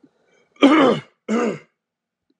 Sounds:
Throat clearing